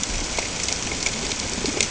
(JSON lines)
{"label": "ambient", "recorder": "HydroMoth"}